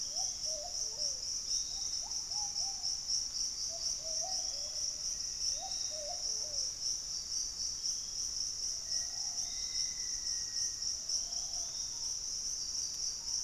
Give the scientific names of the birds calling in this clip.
Patagioenas subvinacea, Patagioenas plumbea, Turdus hauxwelli, Legatus leucophaius, Formicarius analis